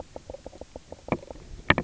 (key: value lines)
label: biophony
recorder: SoundTrap 300